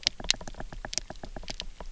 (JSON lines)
{"label": "biophony, knock", "recorder": "SoundTrap 300"}